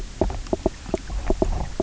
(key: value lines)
label: biophony, knock croak
recorder: SoundTrap 300